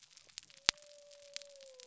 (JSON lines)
{"label": "biophony", "recorder": "SoundTrap 300"}